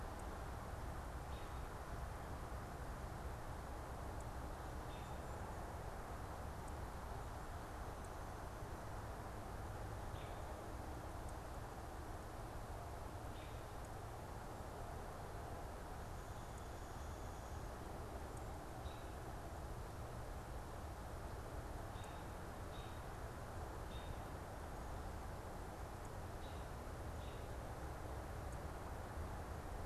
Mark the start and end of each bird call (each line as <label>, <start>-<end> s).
American Robin (Turdus migratorius), 0.0-5.5 s
American Robin (Turdus migratorius), 9.9-13.8 s
American Robin (Turdus migratorius), 18.6-27.4 s